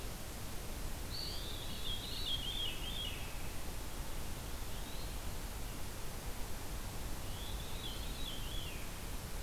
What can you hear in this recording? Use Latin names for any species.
Contopus virens, Catharus fuscescens